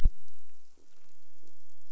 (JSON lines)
{"label": "anthrophony, boat engine", "recorder": "SoundTrap 300"}